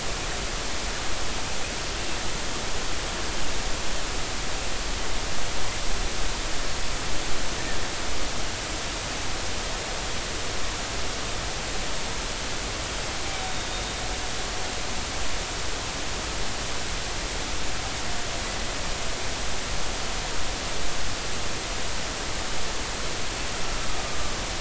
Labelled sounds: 13.4	13.7	humpback whale, 3.6 to 3.8 kHz

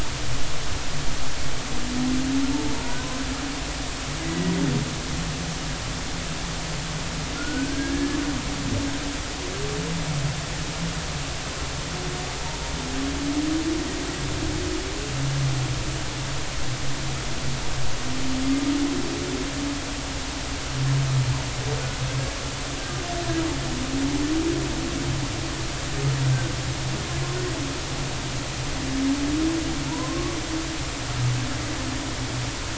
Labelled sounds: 2.7	3.0	humpback whale, 0.86 to 1.0 kHz
4.2	4.5	humpback whale, 1.9 to 2.1 kHz
7.3	8.2	humpback whale, 1.3 to 1.8 kHz
29.9	30.4	humpback whale, 0.86 to 1.2 kHz

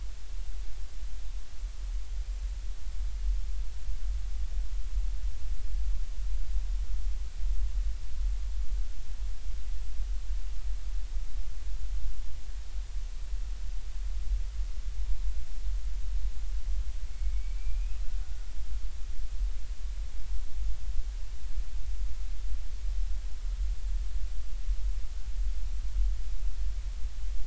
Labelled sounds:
17.1	18.0	killer whale, Bigg's (transient), 2.1 to 2.7 kHz

